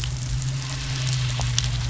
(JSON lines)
{"label": "anthrophony, boat engine", "recorder": "SoundTrap 500"}